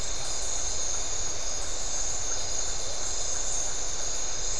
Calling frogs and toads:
Iporanga white-lipped frog (Leptodactylus notoaktites)
9:15pm

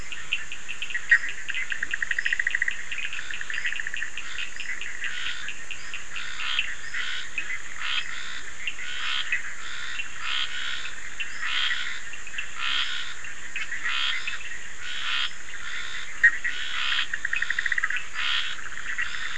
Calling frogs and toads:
Leptodactylus latrans, Bischoff's tree frog (Boana bischoffi), Scinax perereca, Cochran's lime tree frog (Sphaenorhynchus surdus)
10:30pm

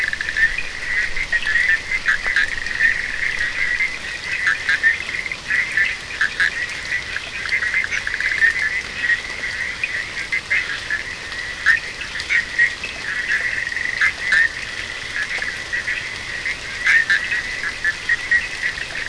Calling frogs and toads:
Bischoff's tree frog (Boana bischoffi)
3:15am

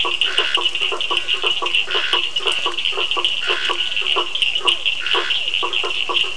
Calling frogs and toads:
Scinax perereca, blacksmith tree frog (Boana faber), Physalaemus cuvieri, Cochran's lime tree frog (Sphaenorhynchus surdus), two-colored oval frog (Elachistocleis bicolor)
7:00pm

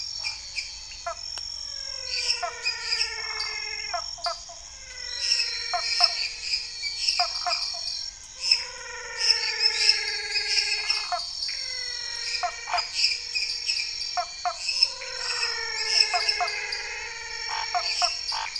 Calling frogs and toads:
Elachistocleis matogrosso, menwig frog (Physalaemus albonotatus), lesser tree frog (Dendropsophus minutus), dwarf tree frog (Dendropsophus nanus), Cuyaba dwarf frog (Physalaemus nattereri), waxy monkey tree frog (Phyllomedusa sauvagii), Scinax fuscovarius
8:00pm

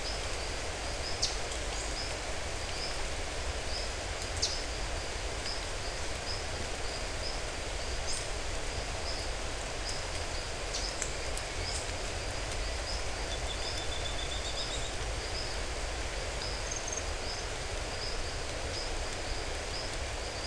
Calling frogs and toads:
none
6:30pm

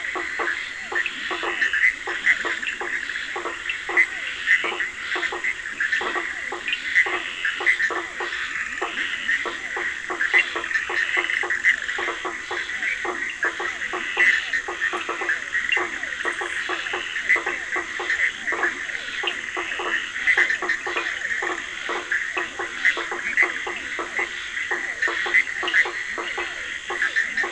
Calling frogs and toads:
Dendropsophus nahdereri, blacksmith tree frog (Boana faber), Physalaemus cuvieri, Scinax perereca, Leptodactylus latrans, Cochran's lime tree frog (Sphaenorhynchus surdus), Bischoff's tree frog (Boana bischoffi)
10:30pm

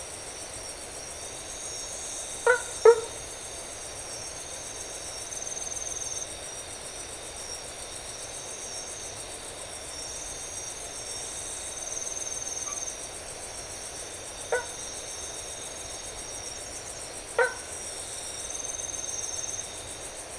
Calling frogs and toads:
blacksmith tree frog (Boana faber), white-edged tree frog (Boana albomarginata)
2:30am

